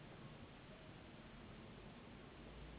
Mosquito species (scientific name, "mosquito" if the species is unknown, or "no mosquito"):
Anopheles gambiae s.s.